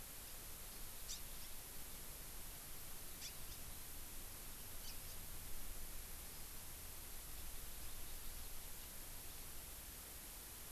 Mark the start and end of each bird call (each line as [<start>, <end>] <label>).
[1.07, 1.17] House Finch (Haemorhous mexicanus)
[3.17, 3.37] House Finch (Haemorhous mexicanus)
[4.77, 4.97] House Finch (Haemorhous mexicanus)